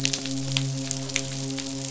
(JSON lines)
{"label": "biophony, midshipman", "recorder": "SoundTrap 500"}